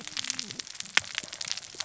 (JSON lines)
{"label": "biophony, cascading saw", "recorder": "SoundTrap 600 or HydroMoth"}